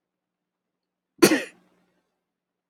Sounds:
Sneeze